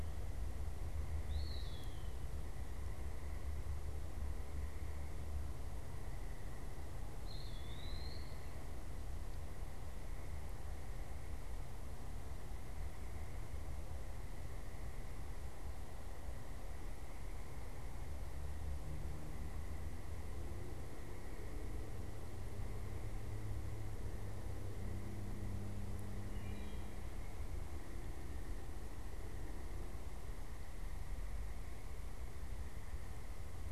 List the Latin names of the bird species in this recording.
Contopus virens